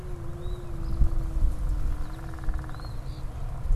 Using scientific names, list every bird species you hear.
Sayornis phoebe